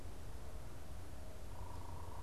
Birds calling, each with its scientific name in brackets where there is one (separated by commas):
unidentified bird